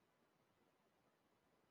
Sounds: Sneeze